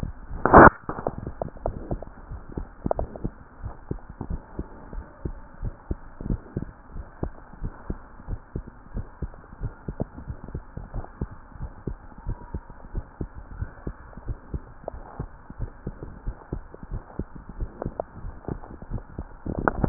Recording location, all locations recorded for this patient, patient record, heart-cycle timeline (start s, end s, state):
tricuspid valve (TV)
aortic valve (AV)+pulmonary valve (PV)+tricuspid valve (TV)+mitral valve (MV)
#Age: Child
#Sex: Male
#Height: nan
#Weight: nan
#Pregnancy status: False
#Murmur: Present
#Murmur locations: tricuspid valve (TV)
#Most audible location: tricuspid valve (TV)
#Systolic murmur timing: Early-systolic
#Systolic murmur shape: Decrescendo
#Systolic murmur grading: I/VI
#Systolic murmur pitch: Low
#Systolic murmur quality: Blowing
#Diastolic murmur timing: nan
#Diastolic murmur shape: nan
#Diastolic murmur grading: nan
#Diastolic murmur pitch: nan
#Diastolic murmur quality: nan
#Outcome: Abnormal
#Campaign: 2015 screening campaign
0.00	3.34	unannotated
3.34	3.64	diastole
3.64	3.74	S1
3.74	3.87	systole
3.87	4.02	S2
4.02	4.28	diastole
4.28	4.42	S1
4.42	4.57	systole
4.57	4.68	S2
4.68	4.92	diastole
4.92	5.06	S1
5.06	5.24	systole
5.24	5.36	S2
5.36	5.62	diastole
5.62	5.74	S1
5.74	5.90	systole
5.90	5.98	S2
5.98	6.24	diastole
6.24	6.40	S1
6.40	6.54	systole
6.54	6.68	S2
6.68	6.92	diastole
6.92	7.06	S1
7.06	7.20	systole
7.20	7.32	S2
7.32	7.56	diastole
7.56	7.72	S1
7.72	7.87	systole
7.87	8.00	S2
8.00	8.26	diastole
8.26	8.40	S1
8.40	8.53	systole
8.53	8.66	S2
8.66	8.92	diastole
8.92	9.06	S1
9.06	9.20	systole
9.20	9.32	S2
9.32	9.60	diastole
9.60	9.72	S1
9.72	9.83	systole
9.83	9.98	S2
9.98	10.24	diastole
10.24	10.38	S1
10.38	10.51	systole
10.51	10.63	S2
10.63	10.93	diastole
10.93	11.04	S1
11.04	11.18	systole
11.18	11.30	S2
11.30	11.57	diastole
11.57	11.72	S1
11.72	11.83	systole
11.83	11.98	S2
11.98	12.24	diastole
12.24	12.38	S1
12.38	12.52	systole
12.52	12.64	S2
12.64	12.92	diastole
12.92	13.06	S1
13.06	13.17	systole
13.17	13.30	S2
13.30	13.54	diastole
13.54	13.70	S1
13.70	13.84	systole
13.84	13.96	S2
13.96	14.24	diastole
14.24	14.38	S1
14.38	14.50	systole
14.50	14.62	S2
14.62	14.96	diastole
14.96	19.89	unannotated